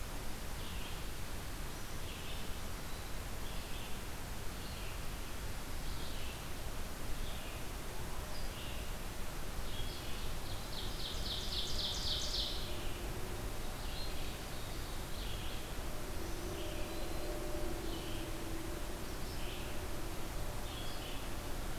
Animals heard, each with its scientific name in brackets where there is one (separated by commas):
Red-eyed Vireo (Vireo olivaceus), Eastern Wood-Pewee (Contopus virens), Ovenbird (Seiurus aurocapilla)